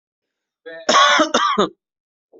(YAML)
expert_labels:
- quality: good
  cough_type: dry
  dyspnea: false
  wheezing: false
  stridor: false
  choking: false
  congestion: false
  nothing: true
  diagnosis: healthy cough
  severity: pseudocough/healthy cough
age: 23
gender: male
respiratory_condition: false
fever_muscle_pain: false
status: healthy